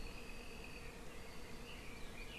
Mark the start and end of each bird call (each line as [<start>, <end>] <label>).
[0.00, 1.90] Apapane (Himatione sanguinea)